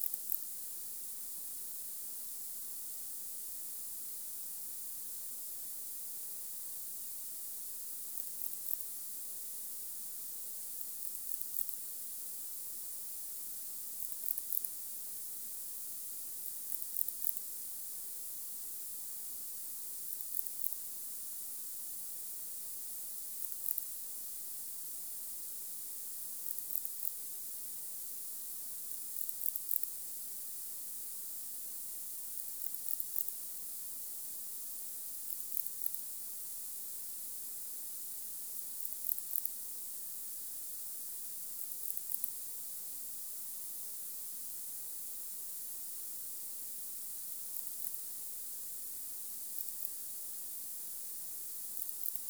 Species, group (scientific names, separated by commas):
Barbitistes yersini, Orthoptera